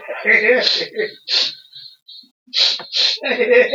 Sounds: Sniff